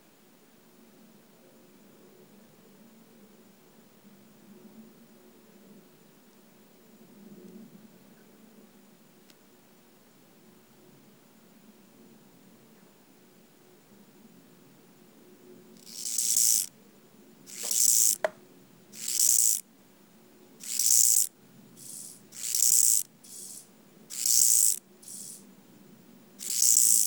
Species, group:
Chorthippus eisentrauti, Orthoptera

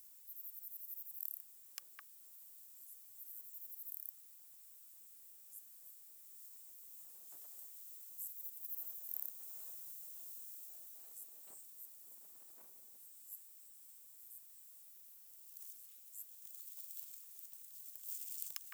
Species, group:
Platycleis affinis, Orthoptera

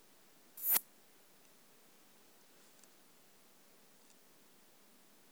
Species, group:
Poecilimon pseudornatus, Orthoptera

